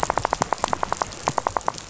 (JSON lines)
{"label": "biophony, rattle", "recorder": "SoundTrap 500"}